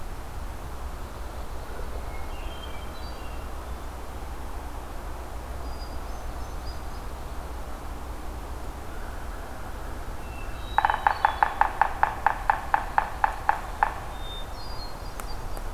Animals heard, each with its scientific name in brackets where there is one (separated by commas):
Hermit Thrush (Catharus guttatus), Yellow-bellied Sapsucker (Sphyrapicus varius)